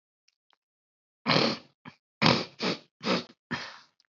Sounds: Throat clearing